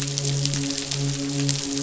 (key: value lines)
label: biophony, midshipman
recorder: SoundTrap 500